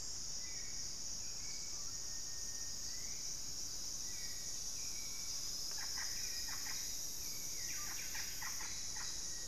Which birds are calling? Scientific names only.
Turdus hauxwelli, Celeus grammicus, unidentified bird, Psarocolius angustifrons, Cantorchilus leucotis, Formicarius analis